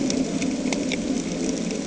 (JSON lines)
{"label": "anthrophony, boat engine", "recorder": "HydroMoth"}